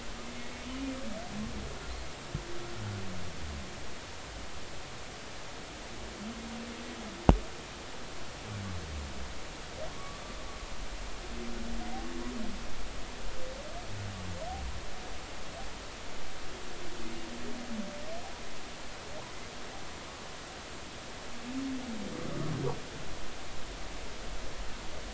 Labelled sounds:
9.9	10.2	humpback whale, 1.1 to 1.2 kHz

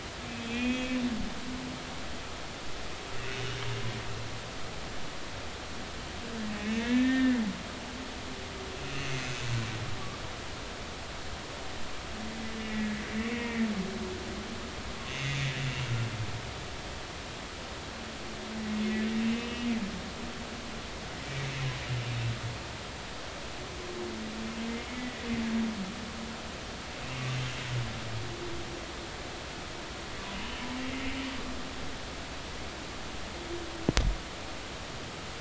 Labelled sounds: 0.4	1.0	humpback whale, 1.9 to 3.6 kHz
6.6	7.4	humpback whale, 1.5 to 2.9 kHz
9.0	9.4	humpback whale, 2.5 to 6.4 kHz
13.4	13.7	humpback whale, 1.8 to 2.2 kHz
15.1	15.4	humpback whale, 2.7 to 6.3 kHz
19.2	19.7	humpback whale, 2.5 to 2.9 kHz
30.3	30.7	humpback whale, 2.8 to 3.1 kHz

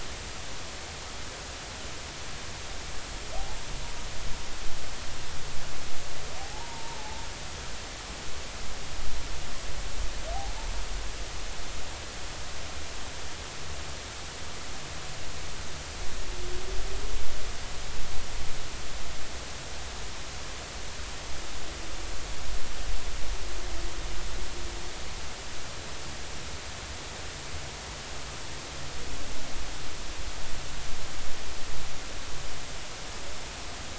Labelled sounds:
3.4	3.6	humpback whale, 0.80 to 0.90 kHz
6.4	7.3	humpback whale, 0.80 to 1.0 kHz

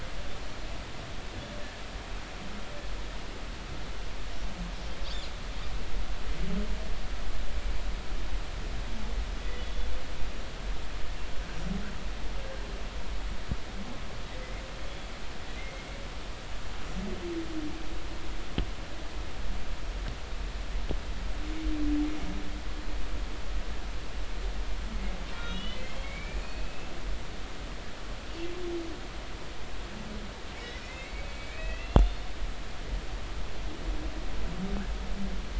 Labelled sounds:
9.3	9.7	humpback whale, 3.3 to 3.6 kHz
15.6	15.8	humpback whale, 2.0 to 2.2 kHz
25.3	26.9	humpback whale, 2.0 to 3.9 kHz
30.8	32.3	humpback whale, 1.9 to 3.7 kHz

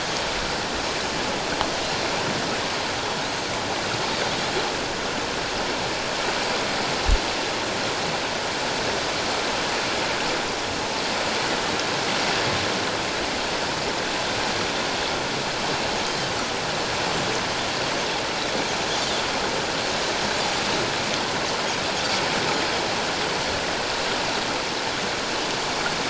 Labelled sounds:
3.2	3.5	Pacific white-sided dolphin, 3.7 to 4.3 kHz

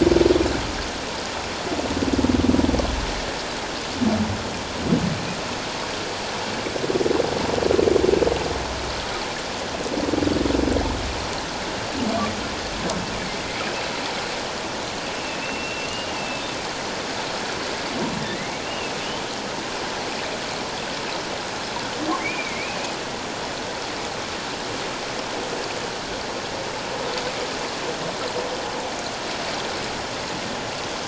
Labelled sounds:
15.4	16.4	humpback whale, 2.6 to 2.9 kHz
18.2	19.0	humpback whale, 1.7 to 2.9 kHz
22.2	22.8	humpback whale, 2.0 to 2.6 kHz

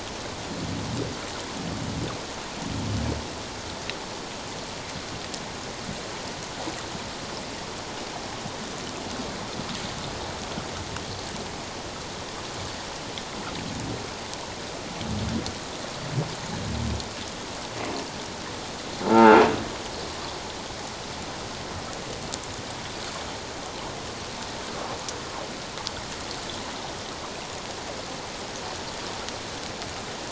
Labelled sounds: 19.1	19.4	croaking sound likely from a nearby submerged object, 0.78 to 1.7 kHz

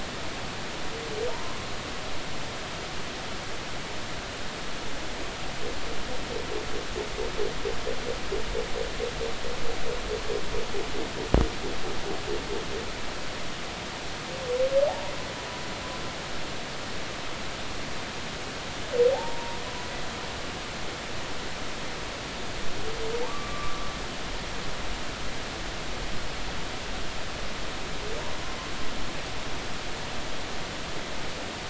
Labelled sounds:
1.3	1.7	humpback whale, 0.86 to 1.2 kHz
14.9	15.1	humpback whale, 0.80 to 1.0 kHz
19.1	19.6	humpback whale, 0.80 to 1.1 kHz
23.3	23.9	humpback whale, 1.1 to 1.2 kHz

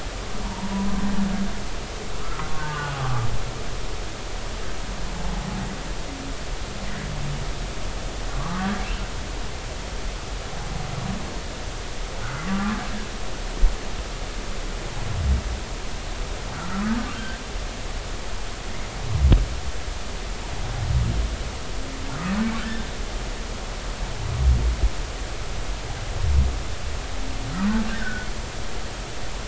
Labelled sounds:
0.4	0.9	humpback whale, 0.86 to 1.1 kHz
2.6	3.5	humpback whale, 0.99 to 1.7 kHz
8.3	8.8	humpback whale, 0.96 to 1.3 kHz
12.2	12.8	humpback whale, 1.1 to 1.6 kHz
16.5	17.4	humpback whale, 1.2 to 1.8 kHz
27.9	28.3	humpback whale, 1.4 to 1.9 kHz

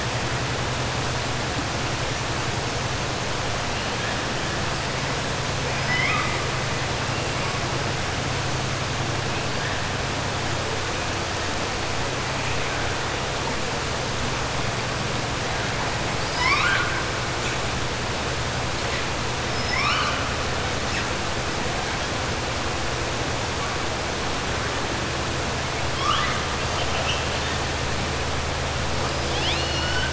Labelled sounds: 5.7	6.4	killer whale, 1.0 to 5.3 kHz
16.1	17.0	killer whale, 1.0 to 5.6 kHz
19.5	20.2	killer whale, 1.1 to 5.4 kHz
25.9	26.4	killer whale, 1.1 to 6.0 kHz
29.2	30.1	killer whale, 1.4 to 5.7 kHz

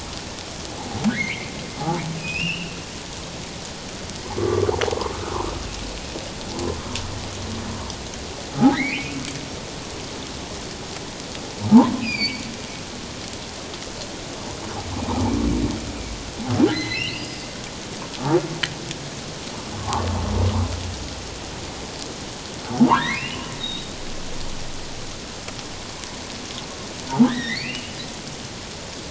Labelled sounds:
1.1	1.5	humpback whale, 1.4 to 2.5 kHz
2.2	2.7	humpback whale, 2.4 to 3.0 kHz
4.2	4.7	humpback whale, 0.97 to 1.2 kHz
8.7	9.2	humpback whale, 1.7 to 3.2 kHz
11.9	12.4	humpback whale, 2.2 to 5.0 kHz
16.7	17.4	humpback whale, 1.5 to 5.1 kHz
19.8	20.1	humpback whale, 0.78 to 1.2 kHz
22.7	23.9	humpback whale, 0.78 to 4.0 kHz
27.1	28.0	humpback whale, 0.78 to 4.0 kHz

